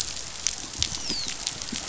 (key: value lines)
label: biophony, dolphin
recorder: SoundTrap 500